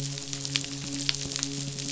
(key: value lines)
label: biophony
recorder: SoundTrap 500

label: biophony, midshipman
recorder: SoundTrap 500